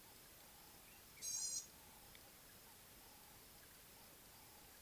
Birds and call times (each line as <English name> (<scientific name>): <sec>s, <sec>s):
Gray-backed Camaroptera (Camaroptera brevicaudata): 1.6s